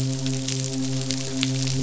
{"label": "biophony, midshipman", "recorder": "SoundTrap 500"}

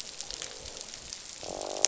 {"label": "biophony, croak", "recorder": "SoundTrap 500"}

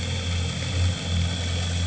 {"label": "anthrophony, boat engine", "recorder": "HydroMoth"}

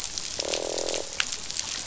{"label": "biophony, croak", "recorder": "SoundTrap 500"}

